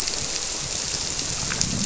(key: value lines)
label: biophony
recorder: SoundTrap 300